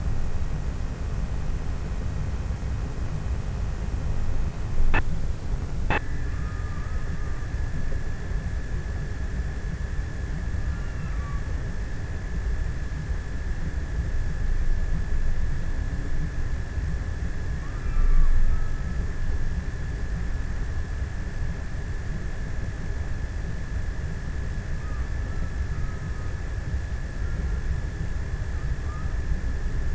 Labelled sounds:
6.5	8.0	killer whale, offshore, 0.75 to 1.9 kHz
10.2	11.9	killer whale, offshore, 0.71 to 1.7 kHz
16.2	19.9	killer whale, offshore, 0.75 to 2.1 kHz
23.7	29.9	killer whale, offshore, 0.71 to 1.9 kHz

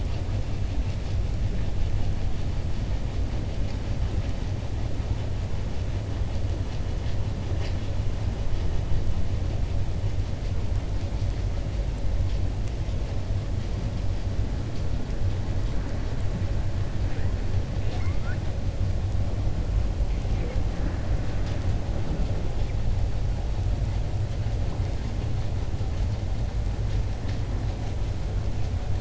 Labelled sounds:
17.7	18.4	killer whale, 0.70 to 6.0 kHz

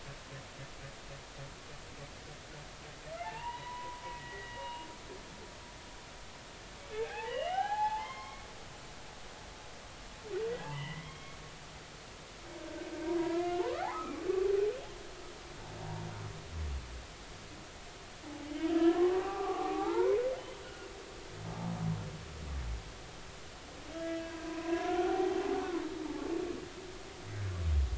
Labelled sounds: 3.2	4.9	humpback whale, 0.80 to 3.0 kHz
6.9	8.5	humpback whale, 0.80 to 3.1 kHz
9.0	9.4	humpback whale, 2.0 to 3.3 kHz
10.6	11.4	humpback whale, 0.80 to 3.3 kHz
13.2	14.2	humpback whale, 0.80 to 1.8 kHz
18.8	20.2	humpback whale, 0.80 to 1.8 kHz
20.6	21.7	humpback whale, 0.83 to 1.5 kHz
23.9	25.8	humpback whale, 0.80 to 3.0 kHz

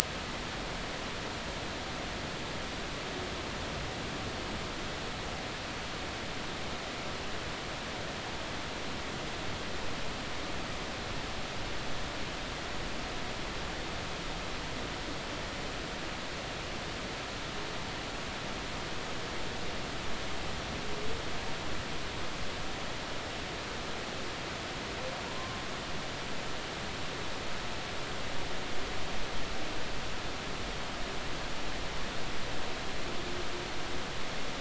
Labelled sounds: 25.3	25.6	humpback whale, 0.93 to 1.1 kHz

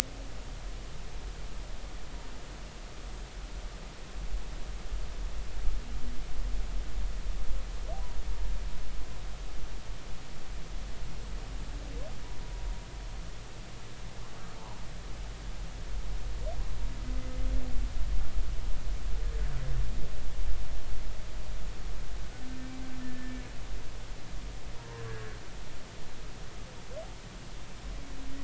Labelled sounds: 23.0	23.4	humpback whale, 1.7 to 1.9 kHz
25.0	25.3	humpback whale, 1.5 to 1.7 kHz

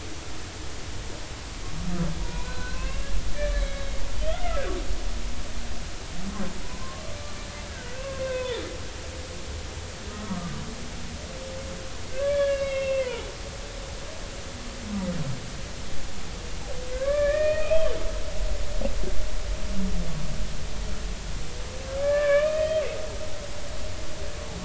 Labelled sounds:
2.2	3.1	humpback whale, 0.90 to 4.2 kHz
3.5	3.9	humpback whale, 2.1 to 4.0 kHz
4.2	5.6	humpback whale, 1.2 to 3.6 kHz
6.8	7.1	humpback whale, 0.99 to 1.2 kHz
7.7	8.6	humpback whale, 0.90 to 3.7 kHz
10.1	10.5	humpback whale, 1.1 to 1.3 kHz
12.1	13.3	humpback whale, 0.80 to 5.1 kHz
16.9	17.9	humpback whale, 1.0 to 2.7 kHz
22.0	22.8	humpback whale, 1.0 to 3.2 kHz

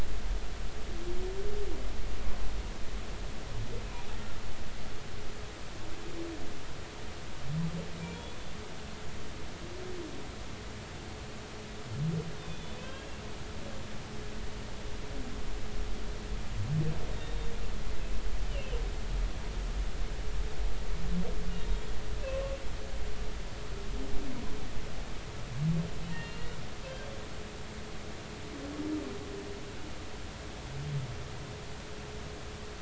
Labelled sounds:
12.4	13.1	humpback whale, 0.99 to 3.7 kHz
13.8	14.1	humpback whale, 1.5 to 1.7 kHz
17.1	17.5	humpback whale, 3.6 to 3.8 kHz
18.5	18.7	humpback whale, 2.5 to 3.0 kHz
21.5	22.5	humpback whale, 1.0 to 3.8 kHz
26.1	26.5	humpback whale, 1.8 to 4.3 kHz

